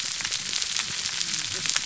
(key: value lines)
label: biophony, whup
recorder: SoundTrap 300